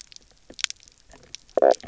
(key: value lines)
label: biophony, knock croak
recorder: SoundTrap 300